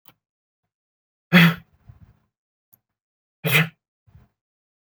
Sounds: Sneeze